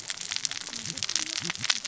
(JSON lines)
{"label": "biophony, cascading saw", "recorder": "SoundTrap 600 or HydroMoth"}